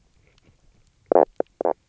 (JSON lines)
{"label": "biophony, knock croak", "recorder": "SoundTrap 300"}